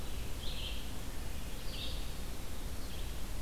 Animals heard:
Red-eyed Vireo (Vireo olivaceus)

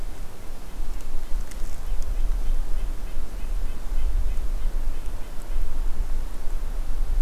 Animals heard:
Red-breasted Nuthatch (Sitta canadensis)

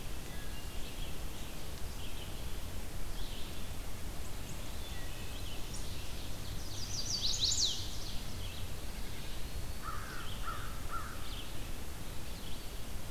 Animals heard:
American Crow (Corvus brachyrhynchos), Chestnut-sided Warbler (Setophaga pensylvanica), Wood Thrush (Hylocichla mustelina), Red-eyed Vireo (Vireo olivaceus), Eastern Chipmunk (Tamias striatus)

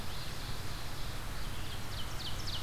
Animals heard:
Red-eyed Vireo (Vireo olivaceus), Ovenbird (Seiurus aurocapilla)

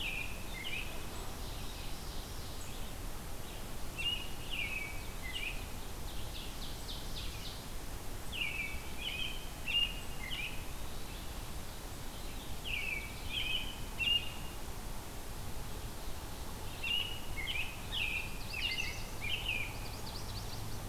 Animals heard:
American Robin (Turdus migratorius), Ovenbird (Seiurus aurocapilla), Red-eyed Vireo (Vireo olivaceus), Yellow-rumped Warbler (Setophaga coronata)

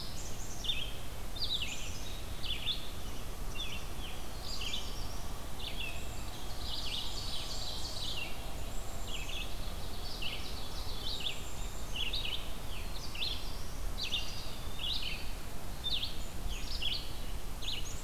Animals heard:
Eastern Wood-Pewee (Contopus virens), Black-throated Blue Warbler (Setophaga caerulescens), Red-eyed Vireo (Vireo olivaceus), Black-capped Chickadee (Poecile atricapillus), Ovenbird (Seiurus aurocapilla), Blackburnian Warbler (Setophaga fusca)

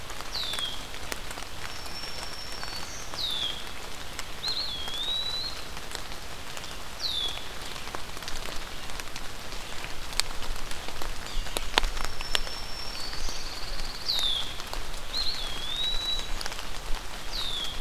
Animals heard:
Pine Warbler (Setophaga pinus), Eastern Wood-Pewee (Contopus virens), Black-throated Green Warbler (Setophaga virens), Red-winged Blackbird (Agelaius phoeniceus), Yellow-bellied Sapsucker (Sphyrapicus varius)

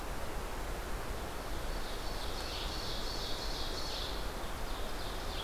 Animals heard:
Ovenbird (Seiurus aurocapilla), Red-eyed Vireo (Vireo olivaceus)

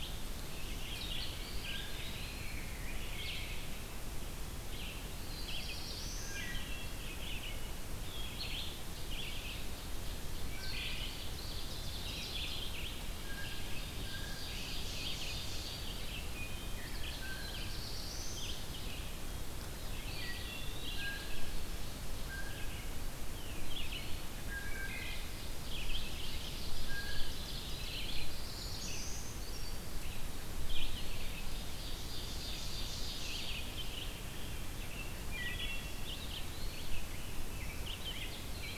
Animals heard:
Black-throated Blue Warbler (Setophaga caerulescens), Rose-breasted Grosbeak (Pheucticus ludovicianus), Brown Creeper (Certhia americana), Wood Thrush (Hylocichla mustelina), Blue Jay (Cyanocitta cristata), Eastern Wood-Pewee (Contopus virens), Red-eyed Vireo (Vireo olivaceus), Ovenbird (Seiurus aurocapilla)

